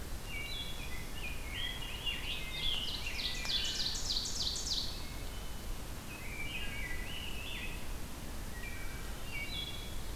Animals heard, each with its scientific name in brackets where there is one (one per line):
Ovenbird (Seiurus aurocapilla)
Rose-breasted Grosbeak (Pheucticus ludovicianus)
Wood Thrush (Hylocichla mustelina)